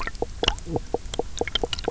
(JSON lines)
{"label": "biophony, knock croak", "recorder": "SoundTrap 300"}